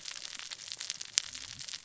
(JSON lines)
{"label": "biophony, cascading saw", "recorder": "SoundTrap 600 or HydroMoth"}